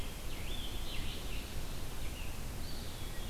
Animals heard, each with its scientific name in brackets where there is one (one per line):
Eastern Wood-Pewee (Contopus virens)
Red-eyed Vireo (Vireo olivaceus)
Scarlet Tanager (Piranga olivacea)